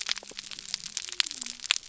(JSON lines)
{"label": "biophony", "recorder": "SoundTrap 300"}